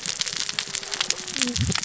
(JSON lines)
{"label": "biophony, cascading saw", "recorder": "SoundTrap 600 or HydroMoth"}